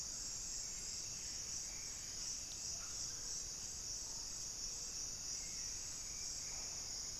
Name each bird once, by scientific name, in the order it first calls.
unidentified bird, Turdus hauxwelli